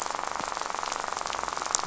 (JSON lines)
{"label": "biophony, rattle", "recorder": "SoundTrap 500"}